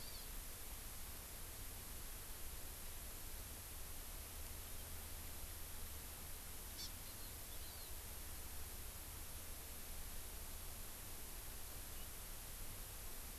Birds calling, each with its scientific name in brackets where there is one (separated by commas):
Hawaii Amakihi (Chlorodrepanis virens)